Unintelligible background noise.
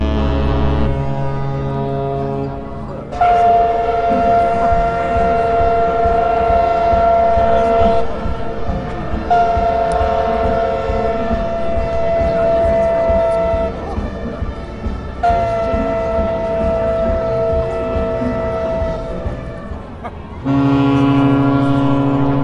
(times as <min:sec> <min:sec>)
0:08.2 0:09.3, 0:13.8 0:15.2, 0:19.1 0:20.5